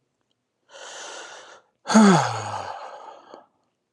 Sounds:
Sigh